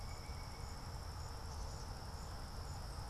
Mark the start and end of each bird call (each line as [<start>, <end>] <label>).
[0.00, 1.28] Pileated Woodpecker (Dryocopus pileatus)
[0.00, 3.10] Black-capped Chickadee (Poecile atricapillus)